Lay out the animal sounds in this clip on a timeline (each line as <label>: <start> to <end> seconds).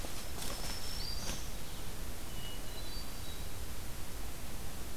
Black-throated Green Warbler (Setophaga virens): 0.2 to 1.6 seconds
Hermit Thrush (Catharus guttatus): 2.3 to 3.7 seconds